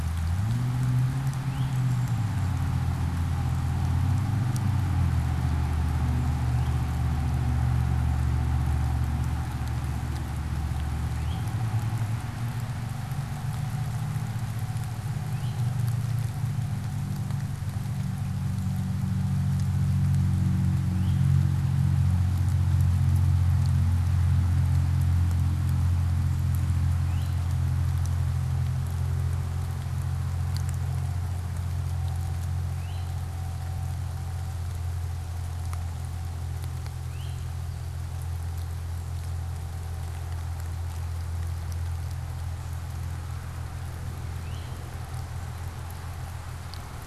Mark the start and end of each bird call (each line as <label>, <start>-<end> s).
Eastern Towhee (Pipilo erythrophthalmus), 1.3-27.6 s
Eastern Towhee (Pipilo erythrophthalmus), 32.6-37.8 s
Eastern Towhee (Pipilo erythrophthalmus), 44.4-44.9 s